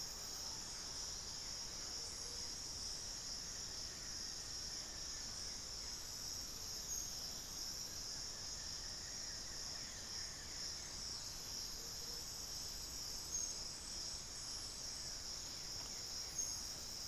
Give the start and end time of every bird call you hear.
[0.00, 11.22] Buff-throated Woodcreeper (Xiphorhynchus guttatus)
[0.00, 17.02] Blue-gray Saltator (Saltator coerulescens)
[0.22, 2.72] unidentified bird

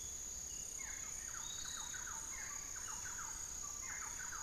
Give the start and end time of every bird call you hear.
[0.00, 4.42] Barred Forest-Falcon (Micrastur ruficollis)
[0.00, 4.42] Piratic Flycatcher (Legatus leucophaius)
[0.44, 4.42] Thrush-like Wren (Campylorhynchus turdinus)
[2.54, 4.42] Long-winged Antwren (Myrmotherula longipennis)

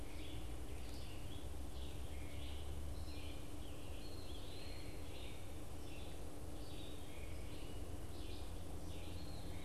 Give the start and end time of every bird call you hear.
[0.00, 9.65] Red-eyed Vireo (Vireo olivaceus)
[4.03, 4.93] Eastern Wood-Pewee (Contopus virens)

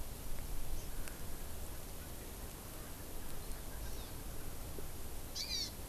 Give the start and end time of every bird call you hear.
[0.79, 4.69] Erckel's Francolin (Pternistis erckelii)
[3.79, 4.09] Hawaii Amakihi (Chlorodrepanis virens)
[5.39, 5.69] Hawaii Amakihi (Chlorodrepanis virens)

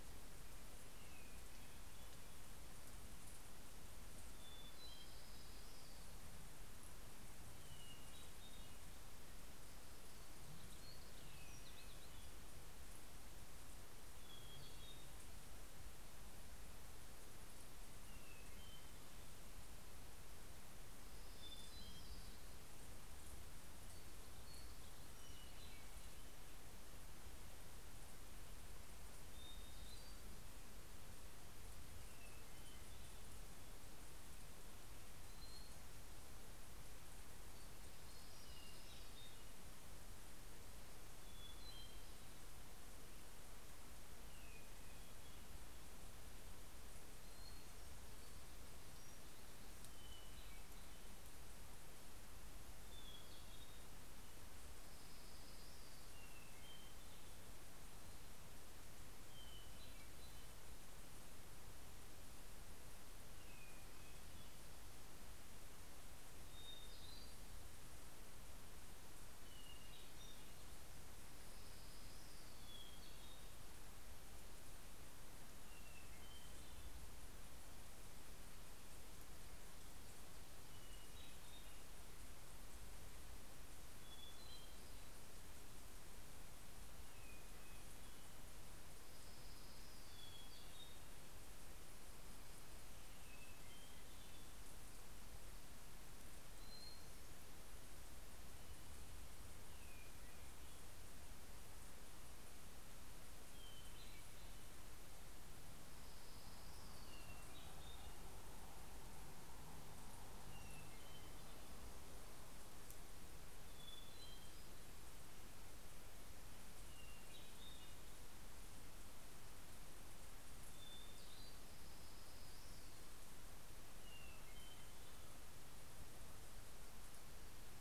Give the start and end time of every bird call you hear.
[0.00, 2.70] Hermit Thrush (Catharus guttatus)
[4.10, 5.80] Hermit Thrush (Catharus guttatus)
[4.40, 6.70] Orange-crowned Warbler (Leiothlypis celata)
[7.30, 9.40] Hermit Thrush (Catharus guttatus)
[10.00, 12.90] Hermit Warbler (Setophaga occidentalis)
[13.60, 16.00] Hermit Thrush (Catharus guttatus)
[17.60, 19.20] Hermit Thrush (Catharus guttatus)
[20.80, 22.30] Hermit Thrush (Catharus guttatus)
[23.50, 26.70] Hermit Thrush (Catharus guttatus)
[28.40, 30.60] Hermit Thrush (Catharus guttatus)
[31.60, 33.50] Hermit Thrush (Catharus guttatus)
[34.60, 36.00] Hermit Thrush (Catharus guttatus)
[37.40, 39.70] Orange-crowned Warbler (Leiothlypis celata)
[38.00, 40.00] Hermit Thrush (Catharus guttatus)
[40.80, 42.60] Hermit Thrush (Catharus guttatus)
[43.40, 46.10] Hermit Thrush (Catharus guttatus)
[46.80, 51.40] Hermit Thrush (Catharus guttatus)
[52.30, 54.10] Hermit Thrush (Catharus guttatus)
[54.50, 56.70] Orange-crowned Warbler (Leiothlypis celata)
[56.10, 58.10] Hermit Thrush (Catharus guttatus)
[58.90, 61.10] Hermit Thrush (Catharus guttatus)
[62.80, 64.80] Hermit Thrush (Catharus guttatus)
[66.40, 67.90] Hermit Thrush (Catharus guttatus)
[69.20, 71.00] Hermit Thrush (Catharus guttatus)
[70.60, 73.30] Orange-crowned Warbler (Leiothlypis celata)
[72.50, 74.00] Hermit Thrush (Catharus guttatus)
[75.20, 77.50] Hermit Thrush (Catharus guttatus)
[80.40, 82.50] Hermit Thrush (Catharus guttatus)
[83.80, 85.60] Hermit Thrush (Catharus guttatus)
[86.80, 88.50] Hermit Thrush (Catharus guttatus)
[89.00, 90.60] Orange-crowned Warbler (Leiothlypis celata)
[90.20, 91.70] Hermit Thrush (Catharus guttatus)
[93.00, 95.10] Hermit Thrush (Catharus guttatus)
[96.10, 97.80] Hermit Thrush (Catharus guttatus)
[99.20, 101.20] Hermit Thrush (Catharus guttatus)
[102.90, 105.00] Hermit Thrush (Catharus guttatus)
[105.20, 107.50] Orange-crowned Warbler (Leiothlypis celata)
[106.90, 108.60] Hermit Thrush (Catharus guttatus)
[110.20, 111.90] Hermit Thrush (Catharus guttatus)
[113.40, 115.30] Hermit Thrush (Catharus guttatus)
[116.60, 119.30] Hermit Thrush (Catharus guttatus)
[120.30, 121.70] Hermit Thrush (Catharus guttatus)
[121.10, 123.40] Orange-crowned Warbler (Leiothlypis celata)
[124.00, 125.90] Hermit Thrush (Catharus guttatus)

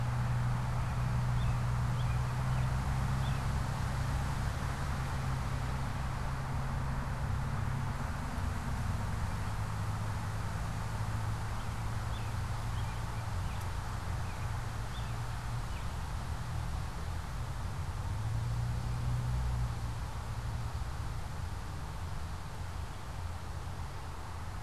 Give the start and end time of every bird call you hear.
[0.42, 3.02] American Robin (Turdus migratorius)
[11.42, 16.12] American Robin (Turdus migratorius)

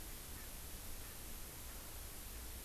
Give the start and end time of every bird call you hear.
[0.30, 0.50] Erckel's Francolin (Pternistis erckelii)
[1.00, 1.20] Erckel's Francolin (Pternistis erckelii)

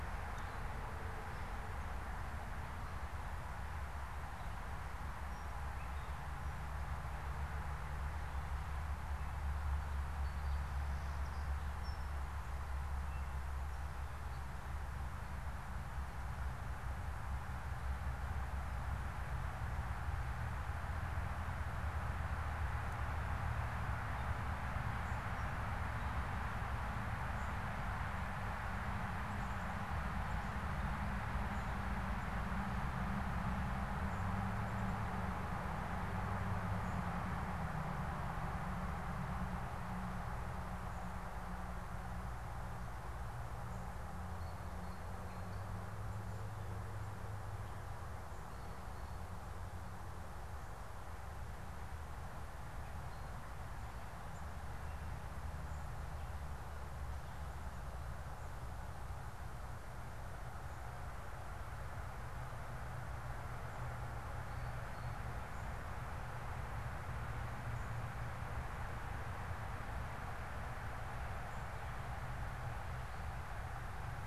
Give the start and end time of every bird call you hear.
[9.71, 12.51] Song Sparrow (Melospiza melodia)
[44.11, 45.81] Blue Jay (Cyanocitta cristata)

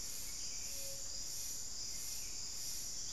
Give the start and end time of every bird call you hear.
[0.00, 3.13] Buff-throated Saltator (Saltator maximus)

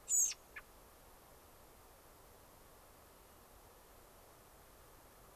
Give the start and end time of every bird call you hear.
[0.00, 0.60] American Robin (Turdus migratorius)

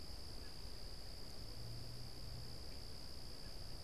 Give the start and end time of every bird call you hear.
[0.00, 3.84] American Robin (Turdus migratorius)

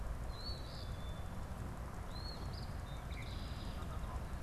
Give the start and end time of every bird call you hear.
[0.00, 0.90] Eastern Phoebe (Sayornis phoebe)
[0.20, 1.40] Black-capped Chickadee (Poecile atricapillus)
[2.00, 2.70] Eastern Phoebe (Sayornis phoebe)
[2.80, 3.80] Red-winged Blackbird (Agelaius phoeniceus)

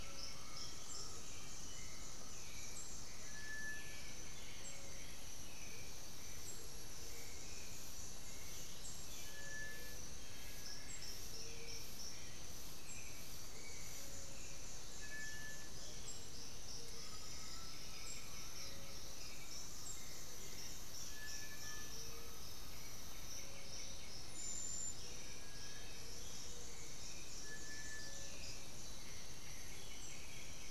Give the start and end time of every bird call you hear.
[0.00, 1.00] White-winged Becard (Pachyramphus polychopterus)
[0.00, 2.80] Undulated Tinamou (Crypturellus undulatus)
[0.00, 4.20] Cinereous Tinamou (Crypturellus cinereus)
[0.00, 30.71] Black-billed Thrush (Turdus ignobilis)
[8.40, 9.70] unidentified bird
[10.20, 11.10] Little Tinamou (Crypturellus soui)
[16.90, 23.60] Undulated Tinamou (Crypturellus undulatus)
[17.30, 24.30] White-winged Becard (Pachyramphus polychopterus)
[18.20, 23.50] Great Antshrike (Taraba major)
[25.10, 26.10] Little Tinamou (Crypturellus soui)
[28.90, 30.71] White-winged Becard (Pachyramphus polychopterus)

